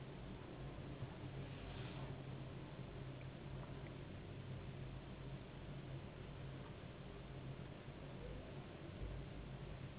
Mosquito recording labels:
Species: Anopheles gambiae s.s.; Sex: female; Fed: unfed; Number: one; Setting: insect culture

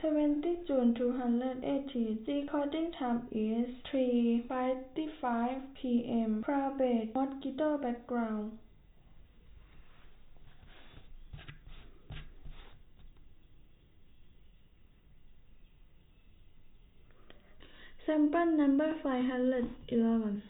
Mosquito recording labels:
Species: no mosquito; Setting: cup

